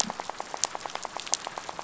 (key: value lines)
label: biophony, rattle
recorder: SoundTrap 500